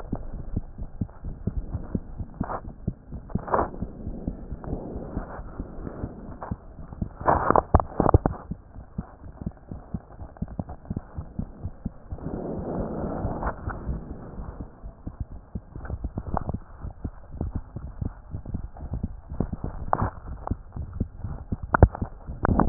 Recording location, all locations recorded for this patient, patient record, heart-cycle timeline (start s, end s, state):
aortic valve (AV)
aortic valve (AV)+pulmonary valve (PV)+tricuspid valve (TV)+mitral valve (MV)
#Age: Child
#Sex: Female
#Height: 119.0 cm
#Weight: 23.6 kg
#Pregnancy status: False
#Murmur: Absent
#Murmur locations: nan
#Most audible location: nan
#Systolic murmur timing: nan
#Systolic murmur shape: nan
#Systolic murmur grading: nan
#Systolic murmur pitch: nan
#Systolic murmur quality: nan
#Diastolic murmur timing: nan
#Diastolic murmur shape: nan
#Diastolic murmur grading: nan
#Diastolic murmur pitch: nan
#Diastolic murmur quality: nan
#Outcome: Normal
#Campaign: 2015 screening campaign
0.00	3.90	unannotated
3.90	4.04	diastole
4.04	4.16	S1
4.16	4.24	systole
4.24	4.36	S2
4.36	4.50	diastole
4.50	4.60	S1
4.60	4.66	systole
4.66	4.80	S2
4.80	4.94	diastole
4.94	5.08	S1
5.08	5.14	systole
5.14	5.24	S2
5.24	5.38	diastole
5.38	5.50	S1
5.50	5.56	systole
5.56	5.66	S2
5.66	5.82	diastole
5.82	5.92	S1
5.92	6.00	systole
6.00	6.10	S2
6.10	6.24	diastole
6.24	6.34	S1
6.34	6.48	systole
6.48	6.58	S2
6.58	6.80	diastole
6.80	6.88	S1
6.88	7.00	systole
7.00	7.10	S2
7.10	7.26	diastole
7.26	7.44	S1
7.44	7.48	systole
7.48	7.60	S2
7.60	7.74	diastole
7.74	7.88	S1
7.88	7.96	systole
7.96	8.10	S2
8.10	8.24	diastole
8.24	8.38	S1
8.38	8.48	systole
8.48	8.58	S2
8.58	8.78	diastole
8.78	8.84	S1
8.84	8.94	systole
8.94	9.06	S2
9.06	9.26	diastole
9.26	9.34	S1
9.34	9.42	systole
9.42	9.52	S2
9.52	9.72	diastole
9.72	9.80	S1
9.80	9.90	systole
9.90	10.00	S2
10.00	10.20	diastole
10.20	10.28	S1
10.28	10.38	systole
10.38	10.50	S2
10.50	10.68	diastole
10.68	10.76	S1
10.76	10.89	systole
10.89	10.97	S2
10.97	11.16	diastole
11.16	11.26	S1
11.26	11.34	systole
11.34	11.46	S2
11.46	11.62	diastole
11.62	11.72	S1
11.72	11.82	systole
11.82	11.92	S2
11.92	12.12	diastole
12.12	22.69	unannotated